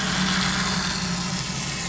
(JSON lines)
{"label": "anthrophony, boat engine", "recorder": "SoundTrap 500"}